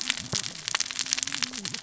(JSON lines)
{"label": "biophony, cascading saw", "recorder": "SoundTrap 600 or HydroMoth"}